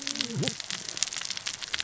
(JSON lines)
{"label": "biophony, cascading saw", "recorder": "SoundTrap 600 or HydroMoth"}